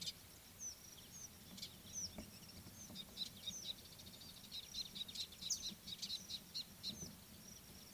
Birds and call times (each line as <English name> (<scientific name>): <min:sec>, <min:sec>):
Scarlet-chested Sunbird (Chalcomitra senegalensis): 0:05.0